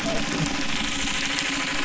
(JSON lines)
{"label": "anthrophony, boat engine", "recorder": "SoundTrap 300"}